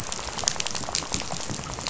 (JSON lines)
{"label": "biophony, rattle", "recorder": "SoundTrap 500"}